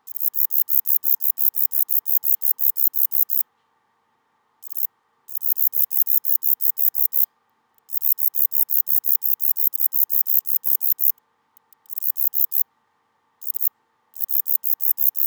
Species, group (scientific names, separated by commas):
Bicolorana bicolor, Orthoptera